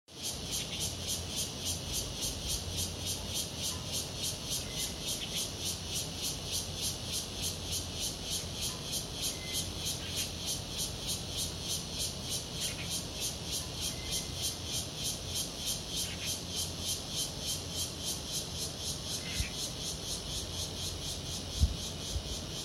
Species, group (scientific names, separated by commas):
Cryptotympana takasagona, Cicadidae